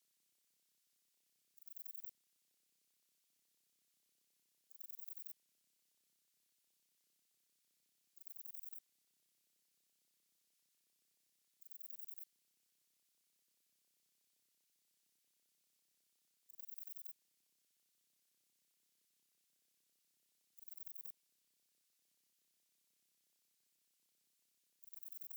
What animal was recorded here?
Antaxius chopardi, an orthopteran